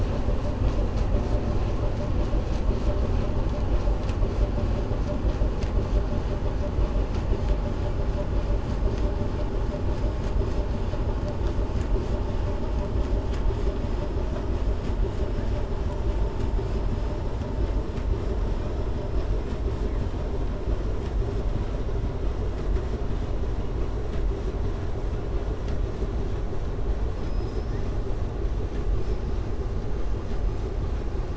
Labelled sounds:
27.1	27.9	killer whale, southern resident, 4.4 to 7.0 kHz

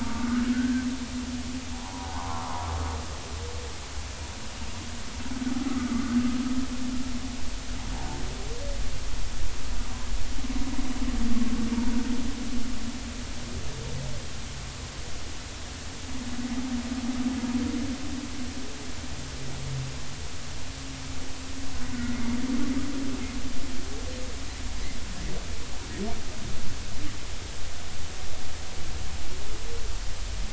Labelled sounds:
0.5	0.9	humpback whale, 1.4 to 1.7 kHz
1.7	2.7	humpback whale, 0.80 to 1.2 kHz
5.9	6.1	humpback whale, 1.1 to 1.3 kHz
22.0	22.2	humpback whale, 1.9 to 2.0 kHz

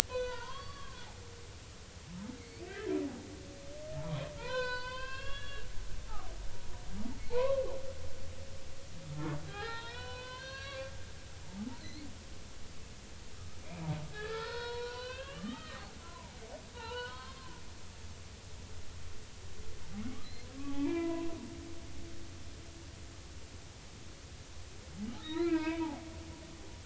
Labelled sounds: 0.1	1.1	humpback whale, 0.90 to 6.1 kHz
2.4	2.9	humpback whale, 1.5 to 2.7 kHz
4.0	5.7	humpback whale, 0.86 to 5.2 kHz
7.2	7.6	humpback whale, 0.83 to 2.7 kHz
9.5	10.9	humpback whale, 0.80 to 5.5 kHz
11.8	12.1	humpback whale, 3.9 to 4.4 kHz
13.6	16.4	humpback whale, 0.80 to 5.4 kHz
16.7	17.5	humpback whale, 0.83 to 4.4 kHz
20.2	21.3	humpback whale, 0.80 to 4.2 kHz
25.2	25.8	humpback whale, 0.86 to 4.3 kHz

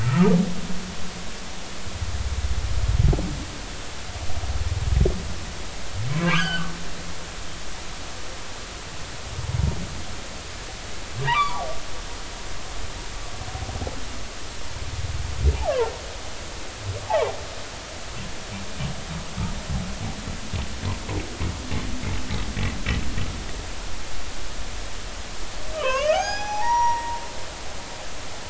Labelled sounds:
0.1	0.4	humpback whale, 1.1 to 1.4 kHz
6.1	6.7	humpback whale, 0.99 to 3.3 kHz
11.2	12.5	humpback whale, 0.80 to 4.9 kHz
17.1	17.3	humpback whale, 0.80 to 1.3 kHz
25.7	27.2	humpback whale, 0.80 to 6.7 kHz

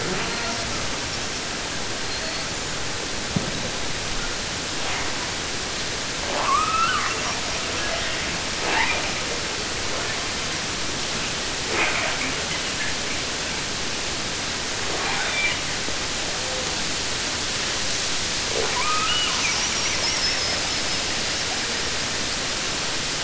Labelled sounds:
1.0	1.5	killer whale, 5.0 to 6.9 kHz
2.0	2.8	killer whale, 0.21 to 7.8 kHz
4.7	5.3	killer whale, 0.20 to 3.6 kHz
6.2	7.4	killer whale, southern resident, 0.18 to 8.0 kHz
7.5	9.5	killer whale, 0.04 to 6.3 kHz
9.9	10.6	killer whale, 0.08 to 4.4 kHz
11.7	13.7	killer whale, 0.10 to 3.3 kHz
14.8	15.8	killer whale, 0.13 to 5.0 kHz
16.3	16.8	killer whale, 0.24 to 1.0 kHz
18.4	22.1	killer whale, 0.09 to 8.0 kHz

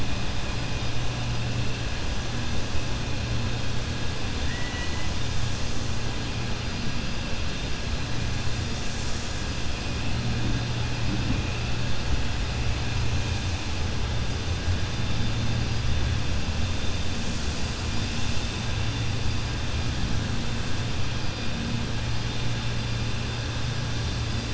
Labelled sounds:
4.4	5.1	killer whale, 1.0 to 3.9 kHz

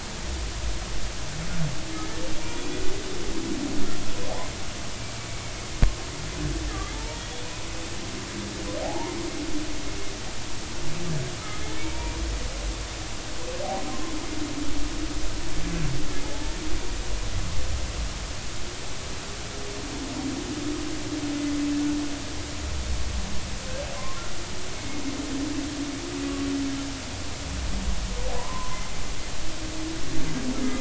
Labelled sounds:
2.4	2.7	humpback whale, 2.3 to 2.5 kHz
6.9	7.2	humpback whale, 0.83 to 0.99 kHz
8.8	9.2	humpback whale, 0.80 to 1.1 kHz
11.8	12.2	humpback whale, 0.90 to 1.0 kHz
23.9	24.2	humpback whale, 0.99 to 1.2 kHz
28.3	28.8	humpback whale, 0.90 to 1.1 kHz

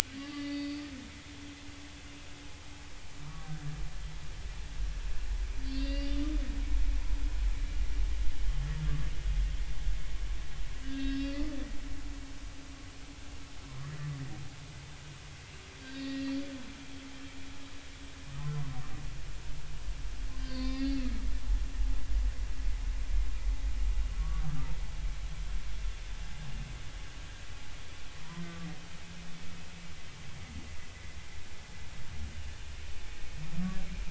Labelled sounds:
0.2	0.8	humpback whale, 2.0 to 4.9 kHz
3.2	3.5	humpback whale, 1.0 to 1.2 kHz
5.6	6.1	humpback whale, 1.9 to 4.8 kHz
10.8	11.4	humpback whale, 1.5 to 5.3 kHz
15.9	16.3	humpback whale, 1.8 to 4.7 kHz
20.4	21.0	humpback whale, 0.96 to 4.9 kHz
24.4	24.7	humpback whale, 1.2 to 1.4 kHz
28.4	28.7	humpback whale, 1.1 to 1.2 kHz

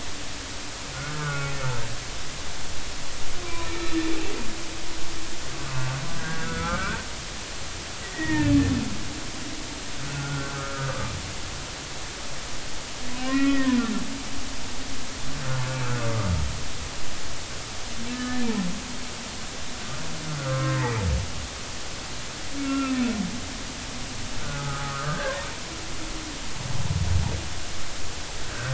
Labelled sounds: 0.9	1.6	humpback whale, 1.1 to 2.6 kHz
3.4	3.9	humpback whale, 0.96 to 2.5 kHz
5.6	7.0	humpback whale, 1.1 to 1.7 kHz
8.0	8.5	humpback whale, 0.86 to 2.0 kHz
10.1	11.1	humpback whale, 1.1 to 1.6 kHz
13.2	13.8	humpback whale, 1.3 to 2.6 kHz
18.1	18.5	humpback whale, 1.2 to 1.8 kHz
20.4	21.0	humpback whale, 1.0 to 2.0 kHz
22.6	23.1	humpback whale, 1.3 to 2.8 kHz
24.6	25.4	humpback whale, 1.1 to 1.8 kHz

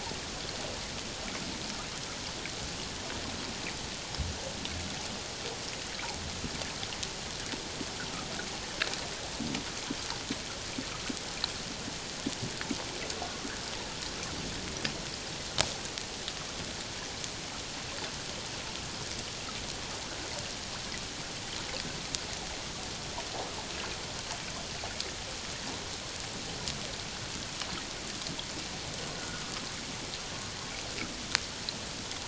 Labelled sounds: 29.2	29.4	humpback whale, 1.2 to 1.5 kHz

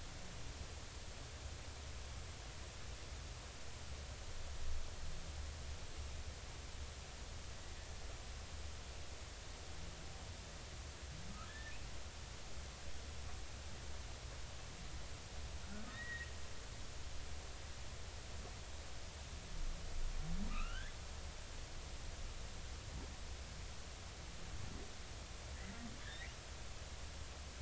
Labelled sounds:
11.5	11.7	humpback whale, 1.6 to 1.9 kHz
15.9	16.3	humpback whale, 1.7 to 2.0 kHz
20.5	20.9	humpback whale, 1.1 to 3.1 kHz
26.0	26.3	humpback whale, 1.6 to 3.8 kHz

